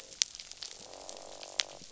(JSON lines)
{"label": "biophony, croak", "recorder": "SoundTrap 500"}